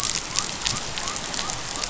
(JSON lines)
{"label": "biophony", "recorder": "SoundTrap 500"}